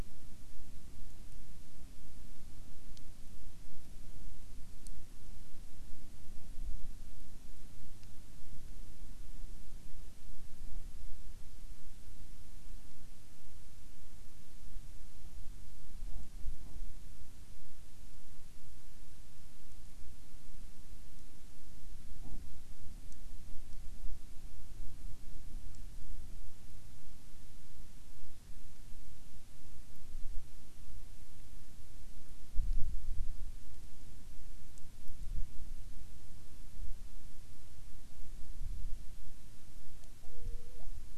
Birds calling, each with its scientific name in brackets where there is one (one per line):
Hawaiian Petrel (Pterodroma sandwichensis)